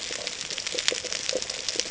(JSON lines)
{"label": "ambient", "recorder": "HydroMoth"}